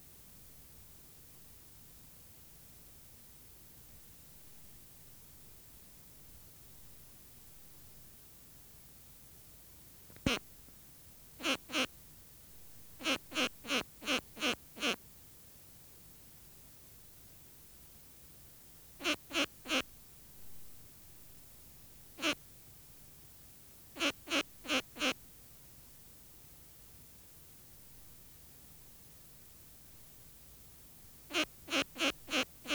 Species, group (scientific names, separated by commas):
Poecilimon luschani, Orthoptera